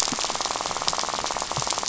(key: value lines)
label: biophony, rattle
recorder: SoundTrap 500